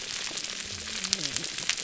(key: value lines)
label: biophony, whup
recorder: SoundTrap 300